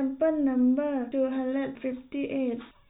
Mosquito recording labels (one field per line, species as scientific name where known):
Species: no mosquito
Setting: cup